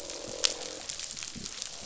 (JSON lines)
{"label": "biophony, croak", "recorder": "SoundTrap 500"}